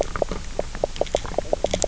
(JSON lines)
{"label": "biophony, knock croak", "recorder": "SoundTrap 300"}